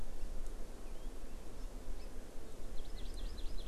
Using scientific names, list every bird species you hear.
Chlorodrepanis virens, Garrulax canorus